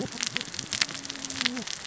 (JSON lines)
{"label": "biophony, cascading saw", "recorder": "SoundTrap 600 or HydroMoth"}